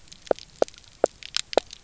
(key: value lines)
label: biophony, knock croak
recorder: SoundTrap 300